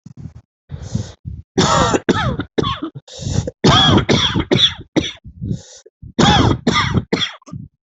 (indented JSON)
{
  "expert_labels": [
    {
      "quality": "ok",
      "cough_type": "dry",
      "dyspnea": true,
      "wheezing": true,
      "stridor": false,
      "choking": true,
      "congestion": false,
      "nothing": false,
      "diagnosis": "lower respiratory tract infection",
      "severity": "severe"
    }
  ]
}